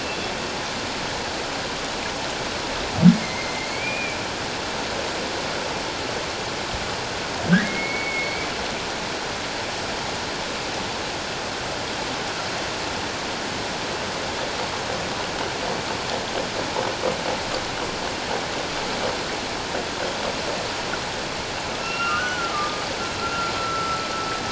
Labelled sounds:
3.1	4.2	humpback whale, 2.0 to 2.6 kHz
7.5	8.5	humpback whale, 1.4 to 4.5 kHz
21.8	24.1	humpback whale, 1.1 to 5.6 kHz

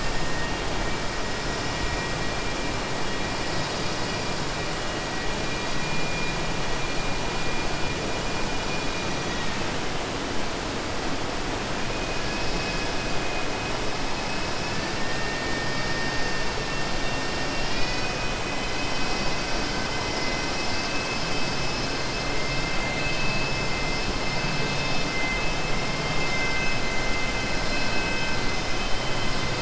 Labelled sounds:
0.3	1.0	killer whale, southern resident, 1.8 to 3.3 kHz
9.0	9.6	killer whale, southern resident, 1.8 to 4.8 kHz

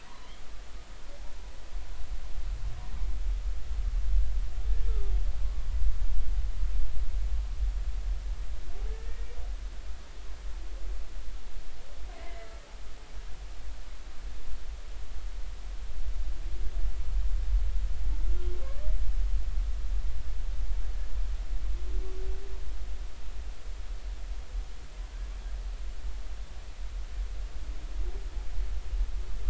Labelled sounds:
0.2	0.4	humpback whale, 2.8 to 3.4 kHz
8.9	9.3	humpback whale, 1.7 to 1.9 kHz
12.2	12.5	humpback whale, 1.9 to 2.1 kHz

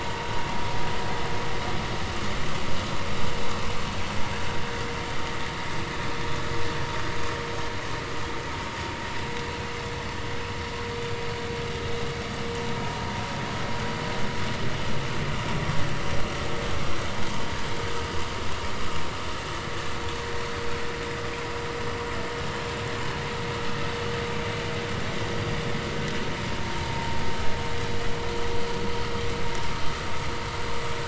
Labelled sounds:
26.9	27.2	vessel noise, 0.83 to 0.96 kHz

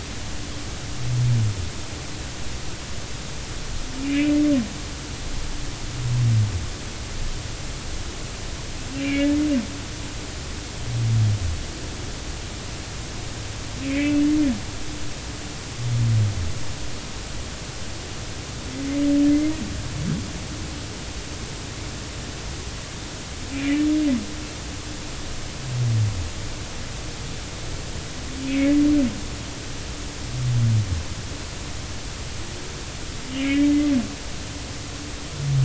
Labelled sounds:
4.0	4.3	humpback whale, 2.2 to 2.7 kHz
8.9	9.4	humpback whale, 1.6 to 2.8 kHz
13.8	14.2	humpback whale, 1.9 to 2.7 kHz
23.5	23.8	humpback whale, 2.0 to 2.5 kHz
28.4	28.7	humpback whale, 2.1 to 2.4 kHz
33.3	33.7	humpback whale, 2.0 to 2.6 kHz

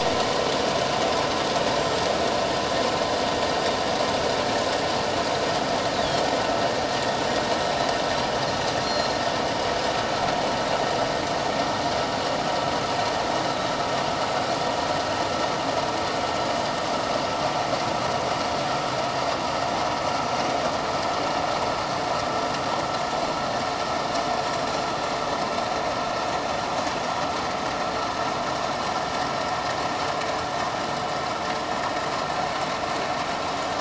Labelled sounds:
6.0	6.2	Pacific white-sided dolphin, 3.2 to 3.9 kHz
8.8	9.2	Pacific white-sided dolphin, 4.1 to 4.3 kHz

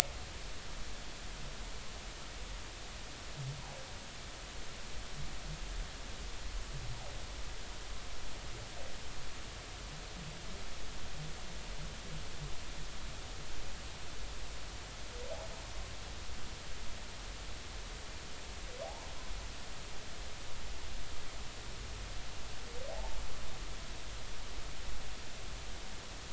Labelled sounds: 22.9	23.2	humpback whale, 0.80 to 0.96 kHz

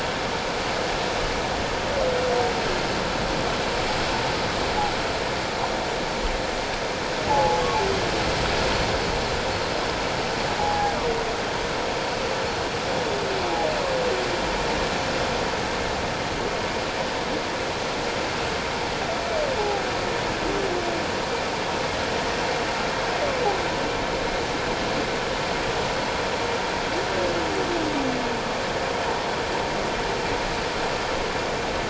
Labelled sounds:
7.3	7.6	humpback whale, 0.78 to 0.97 kHz
10.6	10.9	humpback whale, 0.78 to 0.88 kHz
19.6	19.8	humpback whale, 0.78 to 0.88 kHz

